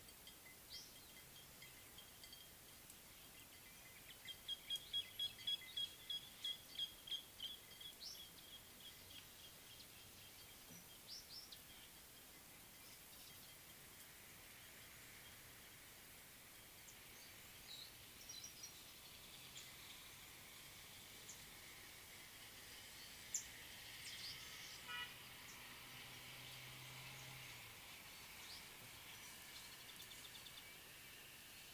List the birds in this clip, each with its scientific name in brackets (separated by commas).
Variable Sunbird (Cinnyris venustus), Nubian Woodpecker (Campethera nubica), Meyer's Parrot (Poicephalus meyeri)